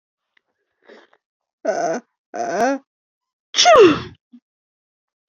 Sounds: Sneeze